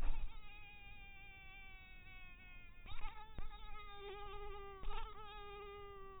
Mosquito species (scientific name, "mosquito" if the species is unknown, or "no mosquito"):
mosquito